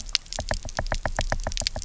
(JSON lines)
{"label": "biophony, knock", "recorder": "SoundTrap 300"}